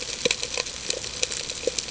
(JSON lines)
{"label": "ambient", "recorder": "HydroMoth"}